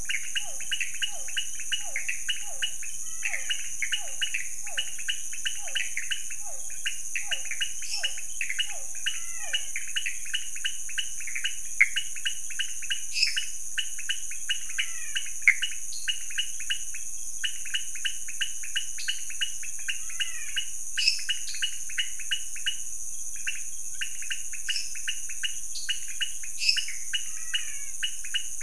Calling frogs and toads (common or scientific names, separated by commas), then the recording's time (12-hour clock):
Physalaemus cuvieri, Pithecopus azureus, pointedbelly frog, menwig frog, lesser tree frog, dwarf tree frog
2:15am